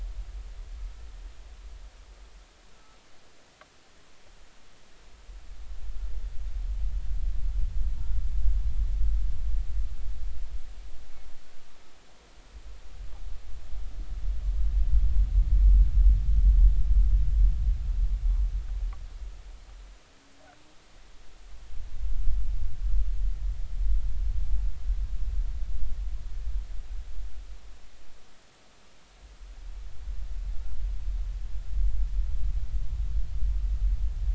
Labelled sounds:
2.7	3.0	humpback whale, 1.2 to 1.4 kHz

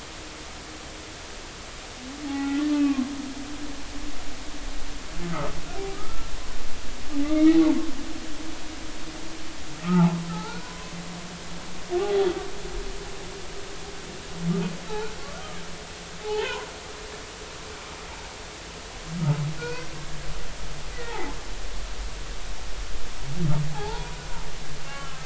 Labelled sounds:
2.3	3.0	humpback whale, 0.80 to 2.7 kHz
5.9	6.3	humpback whale, 1.2 to 1.4 kHz
7.2	7.6	humpback whale, 1.1 to 2.3 kHz
9.8	10.9	humpback whale, 0.80 to 1.5 kHz
16.2	16.7	humpback whale, 0.80 to 3.2 kHz
19.6	19.9	humpback whale, 0.93 to 4.6 kHz
21.1	21.4	humpback whale, 0.80 to 0.96 kHz
23.7	24.2	humpback whale, 0.80 to 1.0 kHz
24.9	25.2	humpback whale, 1.2 to 1.4 kHz

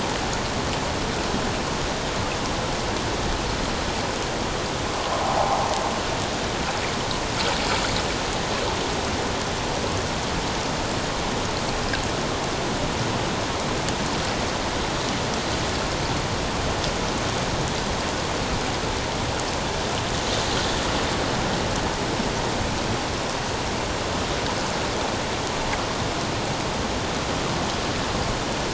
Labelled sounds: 5.2	5.7	water noise, 0.78 to 0.97 kHz

